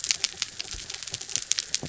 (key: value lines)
label: anthrophony, mechanical
recorder: SoundTrap 300